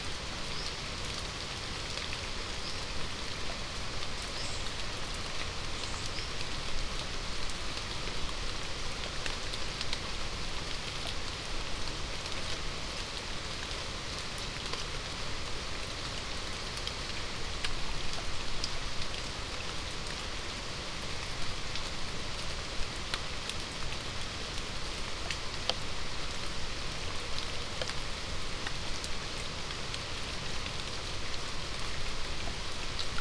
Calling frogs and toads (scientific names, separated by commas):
none